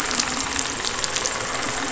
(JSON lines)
{"label": "anthrophony, boat engine", "recorder": "SoundTrap 500"}